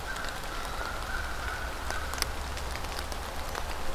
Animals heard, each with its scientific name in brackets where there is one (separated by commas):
American Crow (Corvus brachyrhynchos)